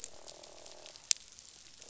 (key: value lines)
label: biophony, croak
recorder: SoundTrap 500